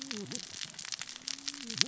{"label": "biophony, cascading saw", "recorder": "SoundTrap 600 or HydroMoth"}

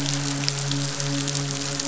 {"label": "biophony, midshipman", "recorder": "SoundTrap 500"}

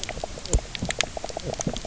{"label": "biophony, knock croak", "recorder": "SoundTrap 300"}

